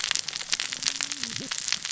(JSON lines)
{"label": "biophony, cascading saw", "recorder": "SoundTrap 600 or HydroMoth"}